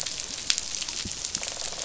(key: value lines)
label: biophony, rattle response
recorder: SoundTrap 500